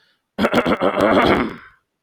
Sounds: Throat clearing